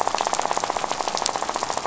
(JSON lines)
{"label": "biophony, rattle", "recorder": "SoundTrap 500"}